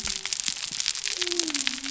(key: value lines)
label: biophony
recorder: SoundTrap 300